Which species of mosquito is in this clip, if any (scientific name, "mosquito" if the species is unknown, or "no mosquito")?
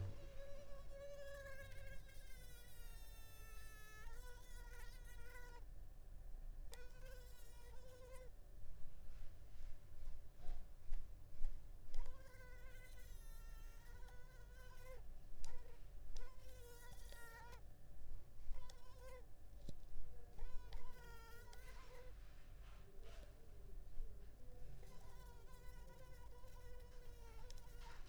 Culex pipiens complex